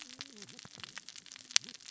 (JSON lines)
{"label": "biophony, cascading saw", "recorder": "SoundTrap 600 or HydroMoth"}